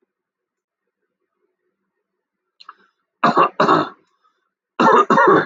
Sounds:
Cough